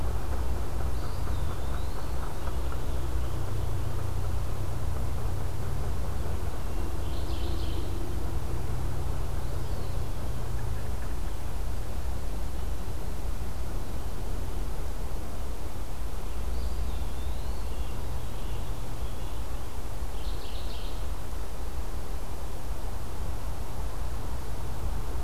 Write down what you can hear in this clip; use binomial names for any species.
Contopus virens, Geothlypis philadelphia, Turdus migratorius